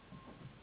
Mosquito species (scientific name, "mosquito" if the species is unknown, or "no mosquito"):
Anopheles gambiae s.s.